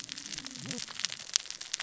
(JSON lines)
{"label": "biophony, cascading saw", "recorder": "SoundTrap 600 or HydroMoth"}